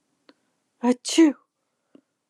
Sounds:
Sneeze